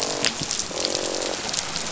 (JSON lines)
{"label": "biophony, croak", "recorder": "SoundTrap 500"}